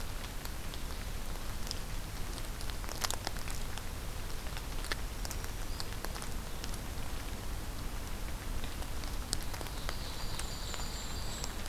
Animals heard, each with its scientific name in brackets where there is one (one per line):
Ovenbird (Seiurus aurocapilla)
Black-throated Green Warbler (Setophaga virens)
Golden-crowned Kinglet (Regulus satrapa)